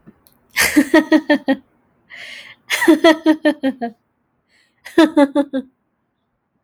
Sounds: Laughter